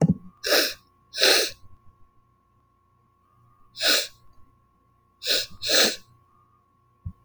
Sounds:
Sniff